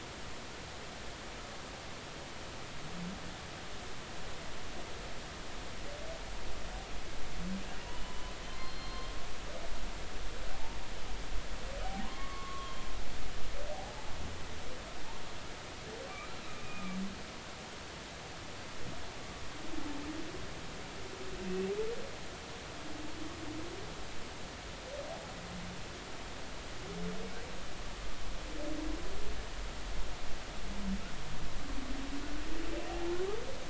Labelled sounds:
7.9	8.3	humpback whale, 0.96 to 3.0 kHz
8.6	9.1	humpback whale, 0.99 to 4.3 kHz
12.0	12.8	humpback whale, 0.93 to 3.3 kHz
13.7	14.0	humpback whale, 0.80 to 0.90 kHz
16.6	17.0	humpback whale, 1.1 to 2.5 kHz

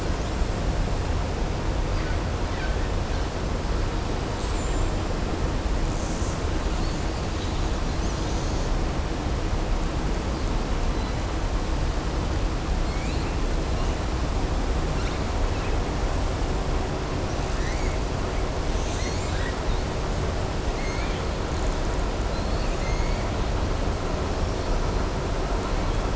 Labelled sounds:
4.3	4.9	killer whale, southern resident, 6.5 to 8.0 kHz
20.7	21.2	killer whale, southern resident, 1.4 to 4.5 kHz

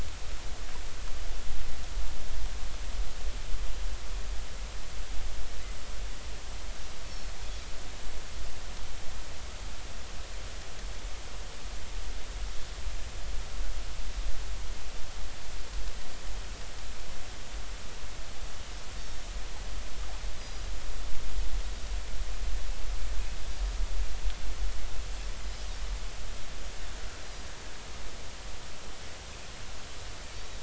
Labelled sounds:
7.1	7.3	Pacific white-sided dolphin, 4.2 to 4.4 kHz
19.0	19.3	Pacific white-sided dolphin, 5.4 to 5.6 kHz
20.4	20.6	Pacific white-sided dolphin, 4.9 to 5.0 kHz
25.4	25.7	Pacific white-sided dolphin, 4.9 to 5.2 kHz

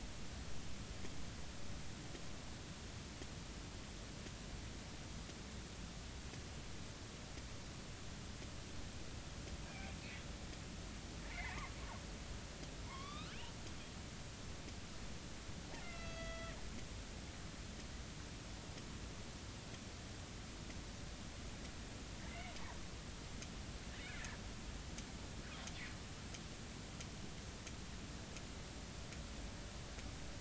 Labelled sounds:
9.7	10.0	killer whale, northern resident, A clan, AB subclan, 2.1 to 2.6 kHz
11.3	11.7	killer whale, northern resident, A clan, AB subclan, 0.80 to 2.4 kHz
12.8	13.4	killer whale, northern resident, A clan, AB subclan, 0.90 to 4.3 kHz
15.8	16.6	killer whale, northern resident, A clan, AB subclan, 1.2 to 5.9 kHz
22.3	22.5	killer whale, northern resident, A clan, AB subclan, 2.0 to 2.3 kHz

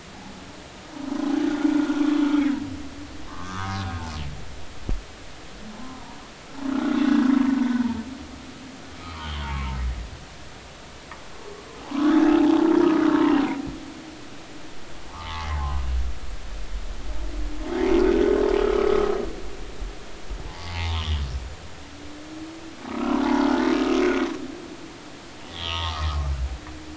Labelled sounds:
1.9	2.3	humpback whale, 1.1 to 3.5 kHz
3.3	3.8	humpback whale, 0.93 to 1.6 kHz
5.7	6.2	humpback whale, 0.86 to 1.1 kHz
6.7	7.0	humpback whale, 1.3 to 1.5 kHz
9.0	9.8	humpback whale, 0.86 to 3.3 kHz
11.8	12.6	humpback whale, 0.80 to 1.3 kHz
15.1	15.5	humpback whale, 0.80 to 1.3 kHz
18.6	18.9	humpback whale, 1.2 to 1.4 kHz
20.4	21.2	humpback whale, 0.80 to 3.8 kHz
22.9	23.5	humpback whale, 0.80 to 1.5 kHz
24.0	24.3	humpback whale, 2.1 to 2.3 kHz
25.5	26.1	humpback whale, 0.80 to 3.8 kHz

